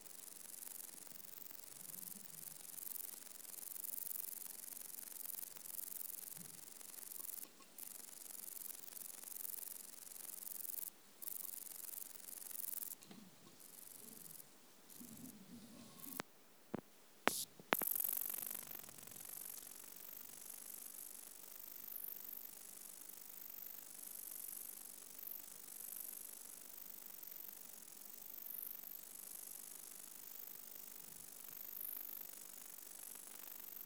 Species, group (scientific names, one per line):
Bicolorana bicolor
Orthoptera